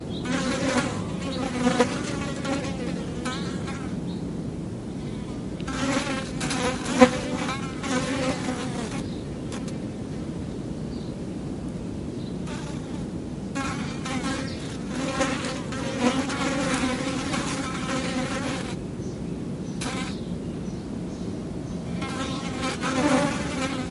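White noise, possibly wind, in the background. 0.0 - 23.9
Insects buzzing. 0.0 - 4.3
Insects buzzing. 5.5 - 9.7
Insects buzzing. 13.5 - 20.3
Insects buzzing. 21.9 - 23.9

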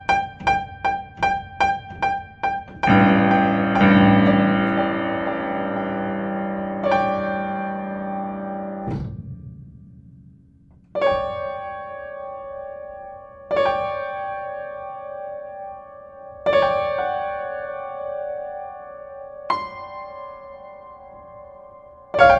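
A high-pitched piano note rings repeatedly and sharply. 0.0 - 2.8
A loud, low-pitched piano note gradually fades away. 2.8 - 6.8
A medium-pitched piano note gradually fades away. 6.7 - 9.5
A medium-pitched piano note gradually fades away. 10.9 - 19.5
A loud, high-pitched piano note that gradually fades away. 19.4 - 22.1
A short, loud, medium-pitched piano note. 22.0 - 22.4

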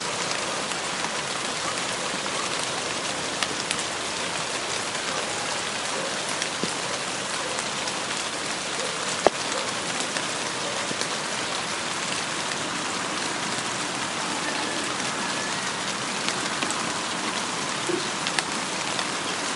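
Soft rainfall falling on a gentle surface, creating a relaxing and calming sound. 0.0 - 19.6
A dog barks multiple times in the distance. 3.2 - 4.0
A dog barks multiple times in the distance. 9.0 - 11.1
A dog barks multiple times in the distance. 16.1 - 19.2

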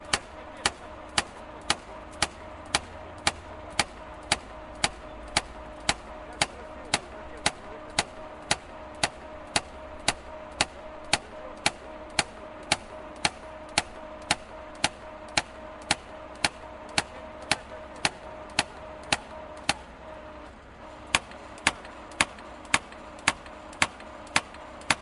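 An engine is quietly running in the background outdoors. 0.0 - 25.0
People chatting quietly in the background outdoors. 0.0 - 25.0
Repetitive, rhythmic, monotone hammering outdoors. 0.0 - 25.0

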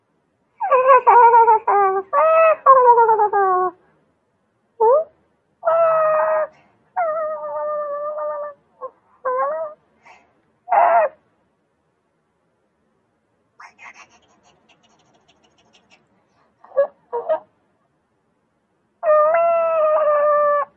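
A muffled, indistinct voice. 0.6 - 3.8
A muffled, indistinct voice. 4.8 - 9.8
A muffled, indistinct voice. 10.7 - 11.1
A high-pitched, indistinct vocal sound. 13.6 - 14.1
A muffled, indistinct voice. 16.6 - 17.5
A muffled, indistinct voice. 19.0 - 20.7

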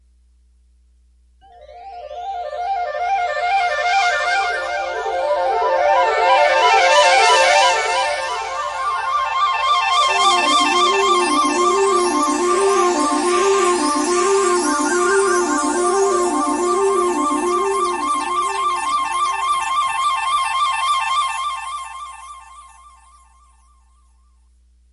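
A melodious flute sound. 1.7 - 22.5

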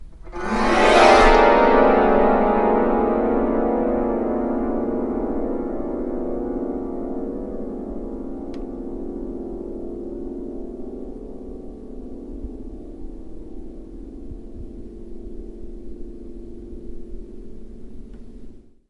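A detuned guitar string is plucked with an acoustic delay effect, creating a creepy sound. 0.3 - 18.8

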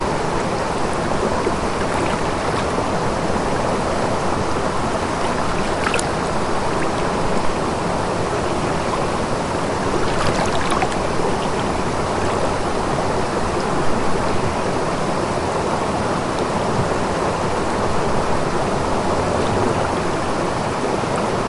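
Gentle bubbling and lively splashing of flowing water. 0.0 - 21.5
Water flowing continuously in the distance. 0.0 - 21.5

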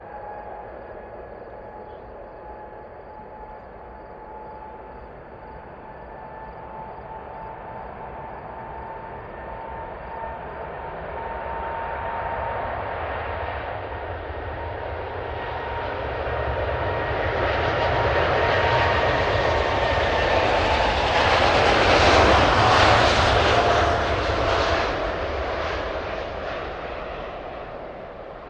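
An airplane is taking off on the runway. 0.0 - 28.5

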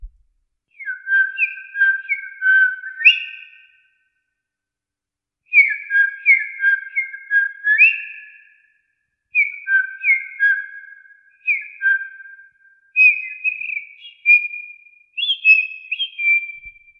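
A bird tweets rhythmically outdoors. 0.6 - 4.0
A bird tweets rhythmically outdoors. 5.5 - 8.2
A bird tweets rhythmically outdoors. 9.2 - 17.0

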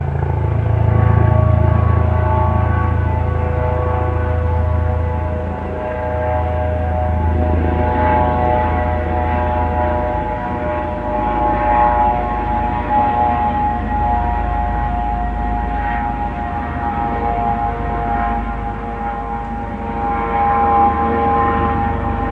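A helicopter hovers overhead with a steady rotor sound in the distance. 0.0 - 11.3
A helicopter's rotor sound gradually fades away in the distance with slight reverb. 11.4 - 22.3

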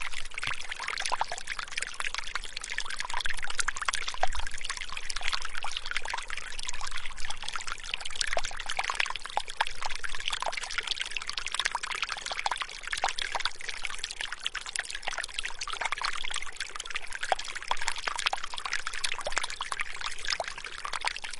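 A relaxing sound of water trickling. 0.0 - 21.4

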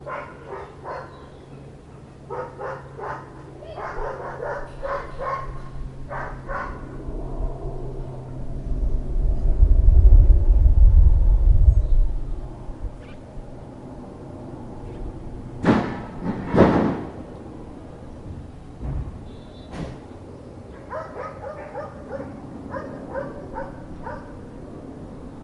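A dog barks quietly and repeatedly in the distance. 0.0 - 1.1
A low hum of something flying in the distance. 0.0 - 25.4
A bird chirps quietly in the distance. 0.8 - 2.1
A dog barks quietly and repeatedly in the distance. 2.2 - 6.7
Someone shouting indistinctly in the distance. 3.5 - 3.9
Birds chirp quietly in the distance. 4.8 - 6.8
A steady, deep bass rumble. 8.5 - 12.2
A bird honks loudly in the distance. 13.0 - 13.3
A bird honks loudly in the distance. 14.9 - 15.2
A deep thump of a metallic object falling to the ground. 15.6 - 17.2
A deep metallic rumble is heard. 18.8 - 19.2
A car horn sounds in the distance. 19.3 - 19.6
A sharp thwack sound. 19.7 - 20.0
A dog barks quietly and repeatedly in the distance. 20.7 - 24.3

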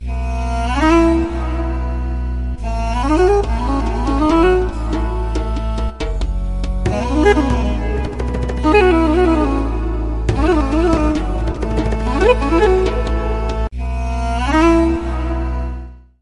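A flute gradually gets louder. 0.0 - 1.3
A constant flute note is playing. 1.3 - 2.6
An increasing flute note echoes repeatedly. 2.6 - 4.8
A flute playing a continuous note. 4.8 - 6.9
Bongos are played repeatedly. 4.8 - 6.9
A flute note gradually getting louder. 6.8 - 7.4
Bongos are played rapidly and repeatedly. 7.4 - 8.6
A flute gradually playing more quietly. 8.6 - 10.3
A flute playing a trembling note. 10.3 - 11.6
Bongos are being played in the background. 10.3 - 11.6
A flute is played, gradually increasing in volume. 11.6 - 12.1
Bongos are played rapidly and repeatedly. 11.6 - 12.1
A flute gradually gets louder. 12.1 - 12.5
A flute note gradually decreases in volume. 12.5 - 13.8
Bongos are being played repeatedly. 12.5 - 13.8
A flute gradually gets louder. 13.7 - 15.0
A flute gradually playing more quietly. 15.0 - 16.2

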